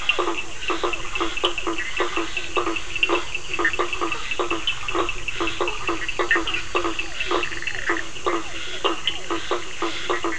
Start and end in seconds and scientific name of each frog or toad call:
0.0	9.4	Sphaenorhynchus surdus
0.0	10.3	Boana faber
0.0	10.3	Physalaemus cuvieri
3.6	3.8	Boana bischoffi
4.1	4.3	Boana prasina
5.6	6.6	Boana prasina
6.2	6.4	Boana bischoffi
7.2	8.1	Boana bischoffi